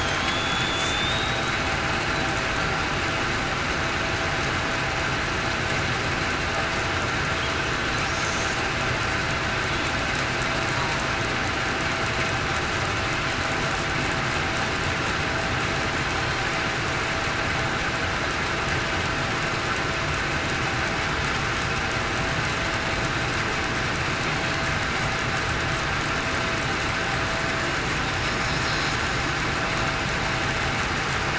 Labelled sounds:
0.3	0.8	killer whale, southern resident, 3.4 to 3.5 kHz

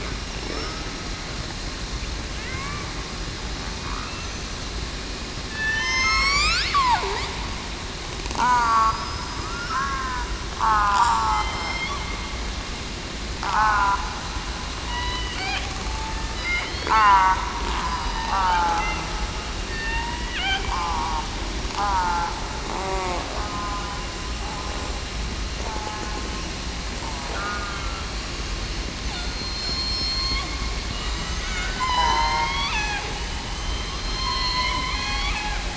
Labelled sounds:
5.5	6.6	killer whale, southern resident, 1.7 to 5.7 kHz
8.3	8.9	killer whale, southern resident, 0.66 to 1.8 kHz
9.7	10.3	killer whale, southern resident, 0.94 to 1.7 kHz
10.6	11.9	killer whale, southern resident, 0.75 to 5.3 kHz
13.4	13.8	killer whale, southern resident, 0.75 to 0.96 kHz
14.8	15.3	killer whale, southern resident, 0.94 to 2.0 kHz
16.9	17.3	killer whale, southern resident, 0.73 to 0.98 kHz
17.8	18.7	killer whale, southern resident, 1.2 to 4.9 kHz
19.7	20.4	killer whale, southern resident, 0.89 to 2.8 kHz
20.7	21.2	killer whale, southern resident, 0.89 to 1.2 kHz
21.8	22.3	killer whale, southern resident, 0.82 to 1.7 kHz
22.8	23.2	killer whale, southern resident, 0.52 to 1.2 kHz
25.6	26.0	killer whale, southern resident, 0.82 to 0.91 kHz
27.3	28.0	killer whale, southern resident, 1.1 to 1.5 kHz
29.2	30.4	killer whale, southern resident, 3.2 to 8.0 kHz
31.0	33.0	killer whale, southern resident, 0.75 to 7.5 kHz
33.4	34.7	killer whale, southern resident, 3.0 to 4.1 kHz

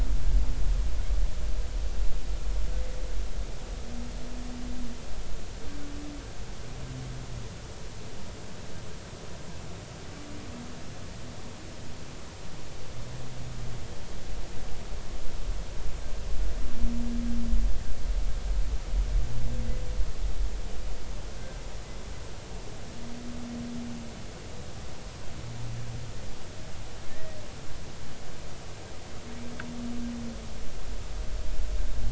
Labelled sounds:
21.3	21.6	humpback whale, 1.5 to 1.7 kHz
27.1	27.4	humpback whale, 1.7 to 2.0 kHz

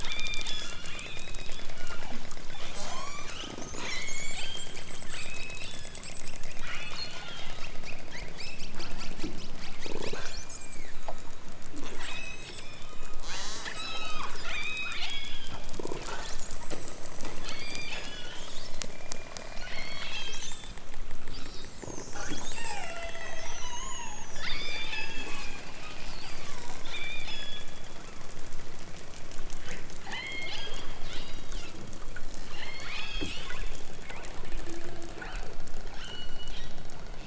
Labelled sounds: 0.0	2.3	killer whale, southern Alaska resident, 0.92 to 5.6 kHz
2.8	3.4	killer whale, southern Alaska resident, 0.37 to 8.0 kHz
3.7	4.8	killer whale, southern Alaska resident, 0.64 to 5.2 kHz
5.1	6.1	killer whale, southern Alaska resident, 1.1 to 5.7 kHz
6.6	7.2	killer whale, southern Alaska resident, 1.1 to 6.1 kHz
10.0	11.5	killer whale, southern Alaska resident, 1.0 to 5.0 kHz
11.9	12.9	killer whale, southern Alaska resident, 0.74 to 8.0 kHz
13.2	15.6	killer whale, southern Alaska resident, 0.41 to 8.0 kHz
17.4	18.4	killer whale, southern Alaska resident, 1.3 to 7.1 kHz
19.0	21.5	killer whale, southern Alaska resident, 0.46 to 8.0 kHz
22.1	25.6	killer whale, southern Alaska resident, 0.41 to 5.9 kHz
26.9	27.7	killer whale, southern Alaska resident, 1.4 to 8.0 kHz
30.0	31.6	killer whale, southern Alaska resident, 1.3 to 6.8 kHz
32.4	33.4	killer whale, southern Alaska resident, 1.3 to 8.0 kHz
35.1	35.5	killer whale, southern Alaska resident, 0.97 to 4.8 kHz
35.8	36.6	killer whale, southern Alaska resident, 0.97 to 8.0 kHz

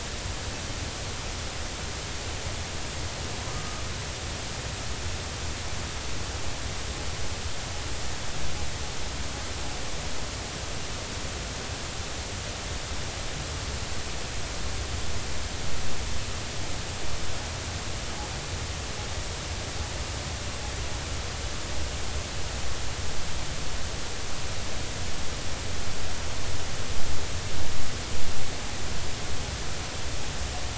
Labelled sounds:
3.5	3.8	humpback whale, 1.2 to 1.3 kHz

